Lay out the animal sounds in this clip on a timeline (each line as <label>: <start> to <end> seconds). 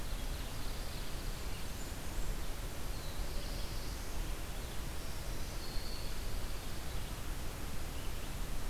Pine Warbler (Setophaga pinus): 0.0 to 1.8 seconds
Blackburnian Warbler (Setophaga fusca): 1.4 to 2.5 seconds
Black-throated Blue Warbler (Setophaga caerulescens): 2.6 to 4.3 seconds
Black-throated Green Warbler (Setophaga virens): 4.9 to 6.3 seconds
Pine Warbler (Setophaga pinus): 5.7 to 6.9 seconds